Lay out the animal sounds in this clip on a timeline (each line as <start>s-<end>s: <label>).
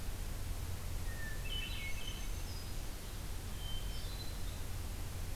1.0s-2.3s: Hermit Thrush (Catharus guttatus)
1.9s-2.8s: Black-throated Green Warbler (Setophaga virens)
3.4s-4.6s: Hermit Thrush (Catharus guttatus)